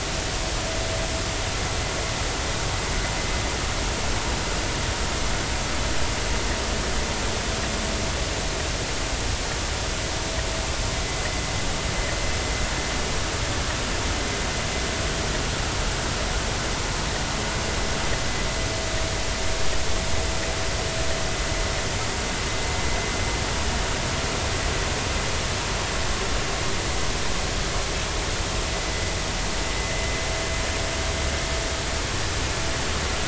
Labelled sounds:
11.0	11.3	vessel noise, 1.8 to 2.1 kHz

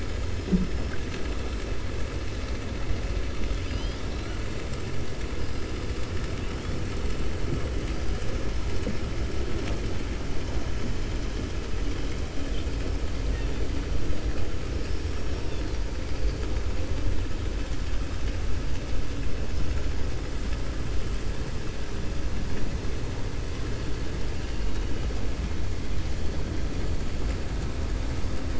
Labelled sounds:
24.3	25.0	killer whale, 2.2 to 4.0 kHz

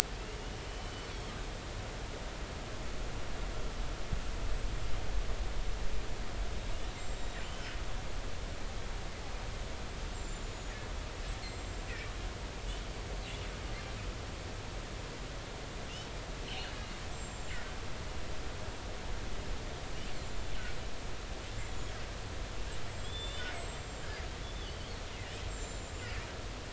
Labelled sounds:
0.7	1.1	killer whale, northern resident, G clan, GG subclan, call N23ii, 2.9 to 3.1 kHz
7.0	7.6	killer whale, northern resident, G clan, GG subclan, call N23ii, 7.0 to 7.6 kHz
7.4	7.7	killer whale, northern resident, G clan, GI subclan, call N23i, 2.8 to 3.2 kHz
10.1	10.7	killer whale, northern resident, G clan, GI subclan, call N23i, 6.8 to 7.6 kHz
11.4	11.9	killer whale, northern resident, G clan, GI subclan, call N23i, 7.3 to 7.6 kHz
16.5	17.6	killer whale, northern resident, G clan, GI subclan, call N25, 2.4 to 7.8 kHz
23.0	24.8	killer whale, northern resident, G clan, GI subclan, call N25, 2.9 to 7.9 kHz
25.5	26.1	killer whale, northern resident, G clan, GI subclan, call N25, 7.0 to 7.7 kHz

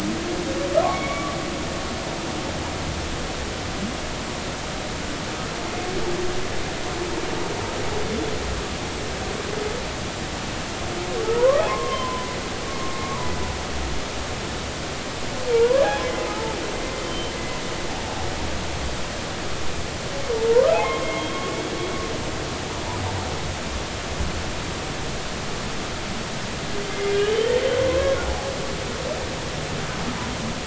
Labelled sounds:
11.3	12.5	humpback whale, 0.93 to 2.0 kHz
12.9	13.2	humpback whale, 1.1 to 1.2 kHz
15.5	16.0	humpback whale, 0.86 to 1.8 kHz
17.0	17.3	humpback whale, 3.0 to 3.2 kHz
20.5	21.6	humpback whale, 0.90 to 3.3 kHz
26.9	28.2	humpback whale, 0.99 to 3.2 kHz

